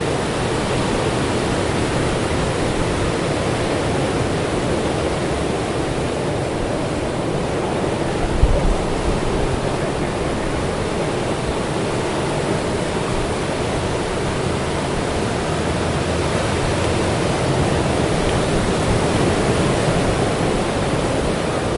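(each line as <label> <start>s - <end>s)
Ocean waves splash repeatedly on the shore. 0.0s - 21.8s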